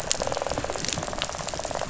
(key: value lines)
label: biophony, rattle
recorder: SoundTrap 500